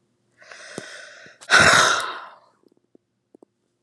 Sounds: Sigh